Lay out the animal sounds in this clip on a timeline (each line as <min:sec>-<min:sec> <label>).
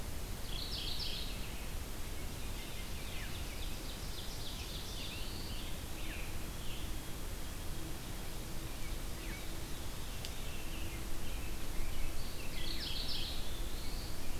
0:00.2-0:01.6 Mourning Warbler (Geothlypis philadelphia)
0:02.8-0:05.2 Ovenbird (Seiurus aurocapilla)
0:04.4-0:05.7 Black-throated Blue Warbler (Setophaga caerulescens)
0:04.9-0:07.1 American Robin (Turdus migratorius)
0:09.5-0:10.9 Veery (Catharus fuscescens)
0:10.2-0:13.0 Scarlet Tanager (Piranga olivacea)
0:12.5-0:13.4 Mourning Warbler (Geothlypis philadelphia)
0:13.3-0:14.4 Black-throated Blue Warbler (Setophaga caerulescens)